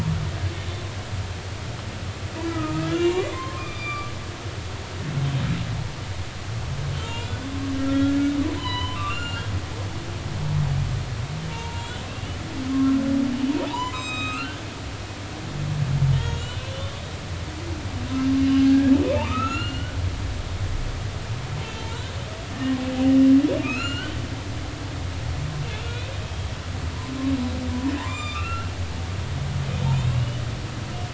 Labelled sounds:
2.4	4.1	humpback whale, 0.99 to 4.9 kHz
6.9	7.5	humpback whale, 1.3 to 7.4 kHz
8.6	9.5	humpback whale, 0.90 to 7.2 kHz
11.5	12.3	humpback whale, 0.86 to 2.8 kHz
12.7	14.6	humpback whale, 0.83 to 7.7 kHz
16.2	17.0	humpback whale, 2.8 to 6.8 kHz
18.4	20.0	humpback whale, 1.1 to 7.2 kHz
21.6	22.0	humpback whale, 0.86 to 3.3 kHz
23.6	24.2	humpback whale, 1.1 to 7.2 kHz
26.2	26.5	humpback whale, 3.2 to 3.3 kHz
28.0	28.7	humpback whale, 0.80 to 7.4 kHz
29.9	30.4	humpback whale, 2.4 to 3.0 kHz

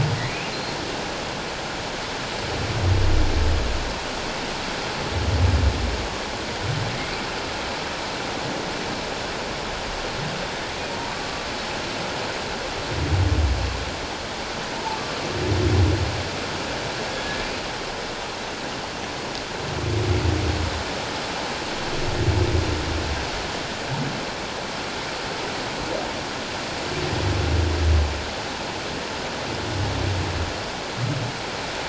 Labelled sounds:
10.9	11.5	humpback whale, 0.88 to 1.2 kHz

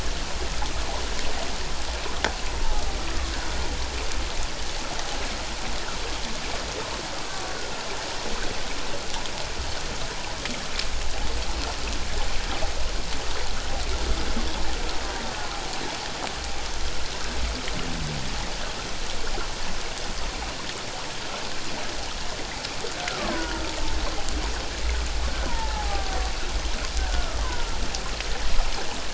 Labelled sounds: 2.6	2.8	killer whale, Bigg's (transient), 0.78 to 0.94 kHz
23.1	23.6	killer whale, Bigg's (transient), 0.91 to 1.7 kHz
25.5	26.2	killer whale, Bigg's (transient), 0.78 to 1.9 kHz
27.0	27.7	killer whale, Bigg's (transient), 0.91 to 1.7 kHz

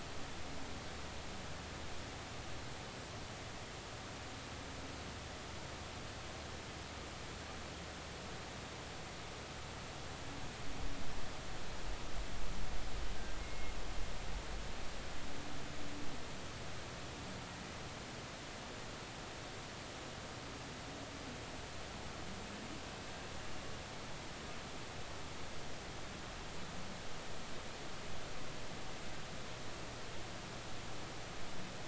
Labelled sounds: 13.4	13.7	humpback whale, 2.1 to 2.2 kHz

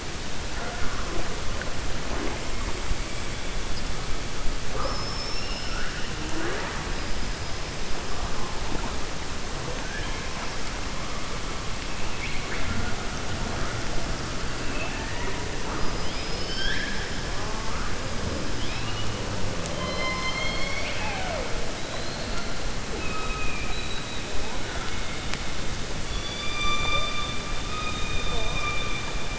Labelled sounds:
4.7	5.8	killer whale, 4.9 to 5.7 kHz
19.7	21.5	killer whale, 0.50 to 5.5 kHz
22.9	24.2	killer whale, 1.3 to 4.0 kHz

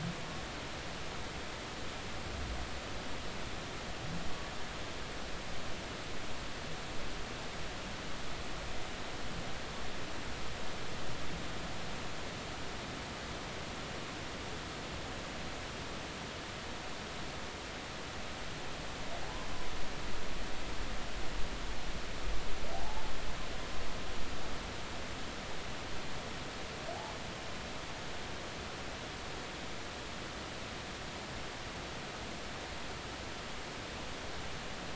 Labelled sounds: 22.7	23.1	humpback whale, 0.80 to 0.93 kHz

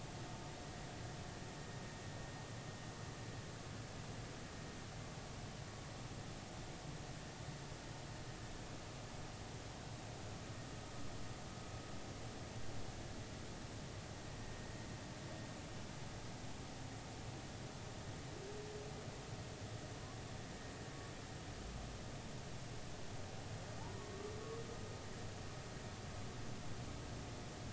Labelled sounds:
24.0	24.3	humpback whale, 1.1 to 1.2 kHz

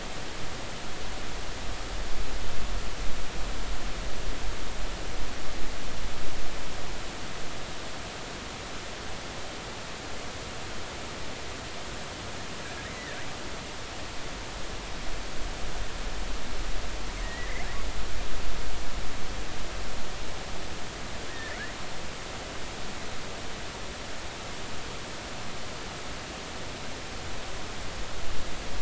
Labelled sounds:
12.9	13.2	killer whale, offshore, 1.7 to 2.1 kHz
17.2	17.7	killer whale, offshore, 1.7 to 2.2 kHz
21.3	21.6	killer whale, offshore, 1.7 to 2.3 kHz

